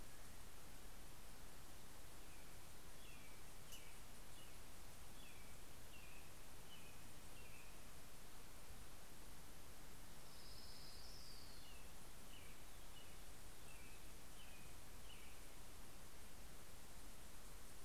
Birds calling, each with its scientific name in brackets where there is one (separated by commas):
Orange-crowned Warbler (Leiothlypis celata), American Robin (Turdus migratorius)